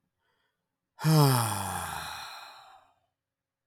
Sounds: Sigh